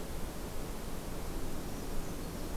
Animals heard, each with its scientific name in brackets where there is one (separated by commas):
Brown Creeper (Certhia americana)